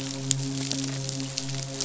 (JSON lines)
{"label": "biophony, midshipman", "recorder": "SoundTrap 500"}